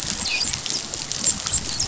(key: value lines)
label: biophony, dolphin
recorder: SoundTrap 500